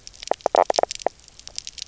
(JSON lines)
{"label": "biophony, knock croak", "recorder": "SoundTrap 300"}